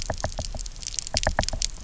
{"label": "biophony, knock", "recorder": "SoundTrap 300"}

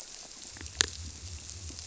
{"label": "biophony", "recorder": "SoundTrap 300"}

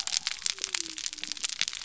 {"label": "biophony", "recorder": "SoundTrap 300"}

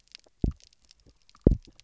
{"label": "biophony, double pulse", "recorder": "SoundTrap 300"}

